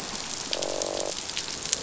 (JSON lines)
{"label": "biophony, croak", "recorder": "SoundTrap 500"}